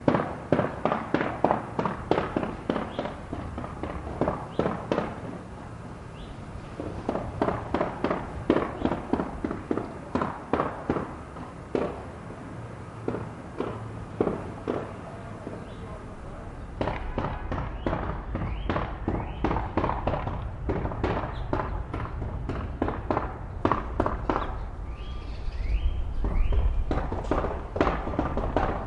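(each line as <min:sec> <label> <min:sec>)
0:00.0 Hammering sounds in the distance. 0:28.9
0:02.5 Very quiet bird tweets. 0:03.9
0:04.5 Very quiet bird tweets. 0:04.9
0:17.4 A car beeps in the distance. 0:18.2
0:24.4 Very quiet bird tweets. 0:27.5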